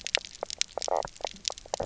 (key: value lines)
label: biophony, knock croak
recorder: SoundTrap 300